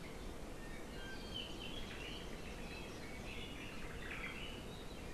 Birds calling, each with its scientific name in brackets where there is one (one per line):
Iiwi (Drepanis coccinea)
Omao (Myadestes obscurus)